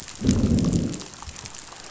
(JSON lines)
{"label": "biophony, growl", "recorder": "SoundTrap 500"}